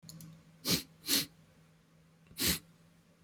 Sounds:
Sniff